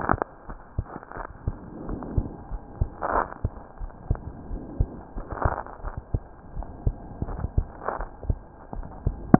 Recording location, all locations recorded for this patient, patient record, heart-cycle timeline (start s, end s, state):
aortic valve (AV)
aortic valve (AV)+pulmonary valve (PV)+tricuspid valve (TV)+mitral valve (MV)
#Age: Child
#Sex: Female
#Height: 116.0 cm
#Weight: 19.4 kg
#Pregnancy status: False
#Murmur: Present
#Murmur locations: tricuspid valve (TV)
#Most audible location: tricuspid valve (TV)
#Systolic murmur timing: Early-systolic
#Systolic murmur shape: Plateau
#Systolic murmur grading: I/VI
#Systolic murmur pitch: Low
#Systolic murmur quality: Blowing
#Diastolic murmur timing: nan
#Diastolic murmur shape: nan
#Diastolic murmur grading: nan
#Diastolic murmur pitch: nan
#Diastolic murmur quality: nan
#Outcome: Abnormal
#Campaign: 2015 screening campaign
0.00	1.86	unannotated
1.86	2.00	S1
2.00	2.12	systole
2.12	2.28	S2
2.28	2.50	diastole
2.50	2.60	S1
2.60	2.76	systole
2.76	2.90	S2
2.90	3.14	diastole
3.14	3.26	S1
3.26	3.40	systole
3.40	3.54	S2
3.54	3.78	diastole
3.78	3.90	S1
3.90	4.06	systole
4.06	4.22	S2
4.22	4.50	diastole
4.50	4.62	S1
4.62	4.74	systole
4.74	4.90	S2
4.90	5.16	diastole
5.16	5.26	S1
5.26	5.42	systole
5.42	5.56	S2
5.56	5.84	diastole
5.84	5.94	S1
5.94	6.10	systole
6.10	6.24	S2
6.24	6.56	diastole
6.56	6.68	S1
6.68	6.84	systole
6.84	6.98	S2
6.98	7.26	diastole
7.26	7.42	S1
7.42	7.54	systole
7.54	7.70	S2
7.70	7.98	diastole
7.98	8.08	S1
8.08	8.24	systole
8.24	8.40	S2
8.40	8.73	diastole
8.73	8.86	S1
8.86	9.04	systole
9.04	9.15	S2
9.15	9.39	unannotated